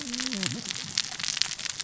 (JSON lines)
{"label": "biophony, cascading saw", "recorder": "SoundTrap 600 or HydroMoth"}